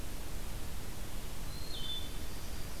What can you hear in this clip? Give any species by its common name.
Wood Thrush, Yellow-rumped Warbler